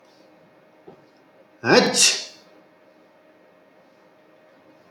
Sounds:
Sneeze